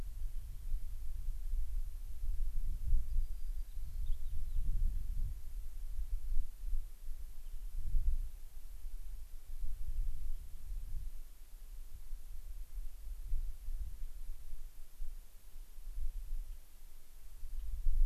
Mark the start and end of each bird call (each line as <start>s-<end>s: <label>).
3.1s-4.7s: White-crowned Sparrow (Zonotrichia leucophrys)
7.4s-7.7s: Rock Wren (Salpinctes obsoletus)
16.5s-16.6s: unidentified bird
17.5s-17.7s: unidentified bird